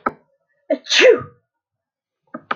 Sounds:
Sneeze